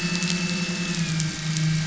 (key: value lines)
label: anthrophony, boat engine
recorder: SoundTrap 500